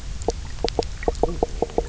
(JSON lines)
{"label": "biophony, knock croak", "recorder": "SoundTrap 300"}